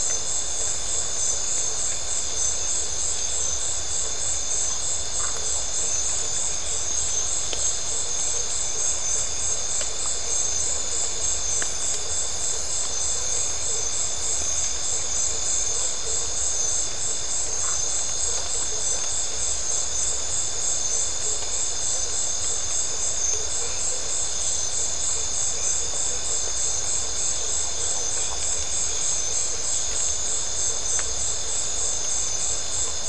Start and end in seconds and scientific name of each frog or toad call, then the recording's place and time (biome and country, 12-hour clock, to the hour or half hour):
5.2	5.4	Phyllomedusa distincta
17.5	17.8	Phyllomedusa distincta
Atlantic Forest, Brazil, ~11pm